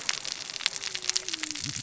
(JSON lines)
{"label": "biophony, cascading saw", "recorder": "SoundTrap 600 or HydroMoth"}